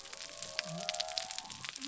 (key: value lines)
label: biophony
recorder: SoundTrap 300